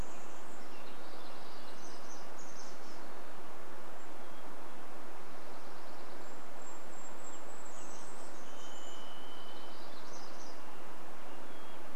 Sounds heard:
Chestnut-backed Chickadee call, Golden-crowned Kinglet song, Hermit Thrush song, Western Tanager song, Dark-eyed Junco song, warbler song, Varied Thrush song

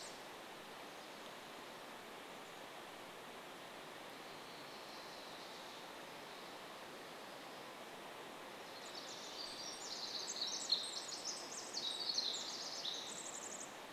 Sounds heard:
Chestnut-backed Chickadee call, Pacific Wren song, Orange-crowned Warbler song

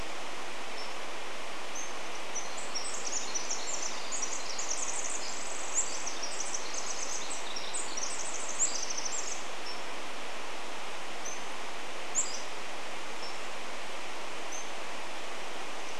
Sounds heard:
Pacific Wren song, Pacific-slope Flycatcher call, Pacific-slope Flycatcher song

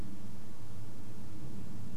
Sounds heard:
airplane

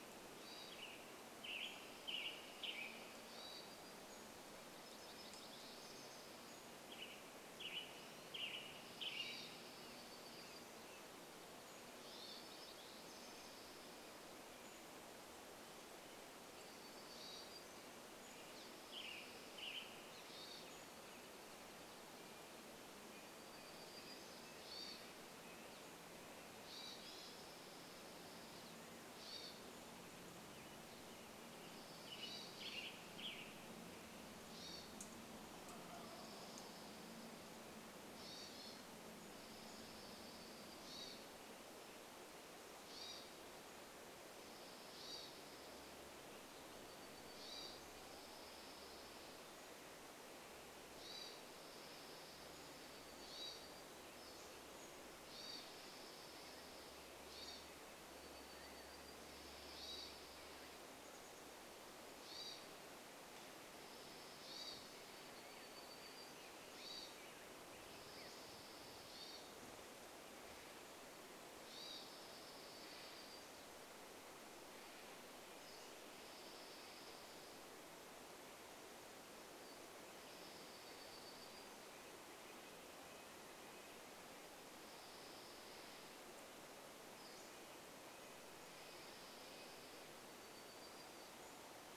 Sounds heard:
Red-breasted Nuthatch song, Wild Turkey song, Western Tanager song, Pacific-slope Flycatcher call, Hermit Thrush call, Dark-eyed Junco song, warbler song

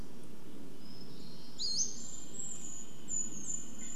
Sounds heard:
Red-breasted Nuthatch song, Pacific-slope Flycatcher call, airplane, Brown Creeper call, Steller's Jay call, Hermit Thrush song

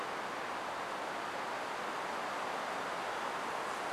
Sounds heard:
Hermit Thrush song, insect buzz

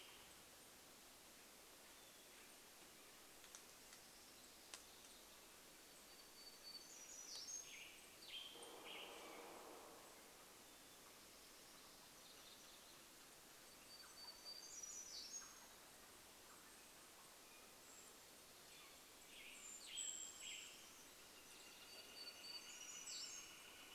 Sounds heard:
Northern Flicker call, warbler song, woodpecker drumming, Canada Jay call, Western Tanager song, Golden-crowned Kinglet call

